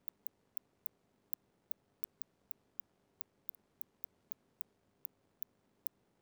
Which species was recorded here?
Cyrtaspis scutata